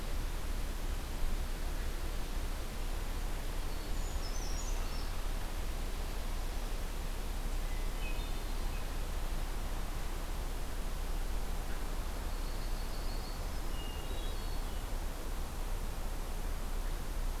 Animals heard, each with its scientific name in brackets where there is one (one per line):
Brown Creeper (Certhia americana)
Hermit Thrush (Catharus guttatus)
Yellow-rumped Warbler (Setophaga coronata)